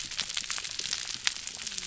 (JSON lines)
{"label": "biophony, whup", "recorder": "SoundTrap 300"}